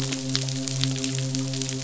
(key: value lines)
label: biophony, midshipman
recorder: SoundTrap 500